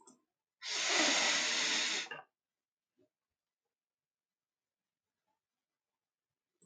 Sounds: Sniff